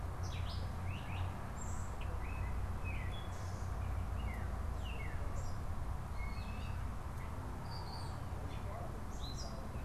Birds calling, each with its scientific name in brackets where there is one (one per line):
Gray Catbird (Dumetella carolinensis)